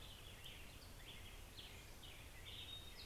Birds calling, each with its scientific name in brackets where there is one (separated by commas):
Hermit Thrush (Catharus guttatus), Black-headed Grosbeak (Pheucticus melanocephalus)